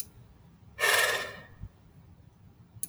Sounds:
Sigh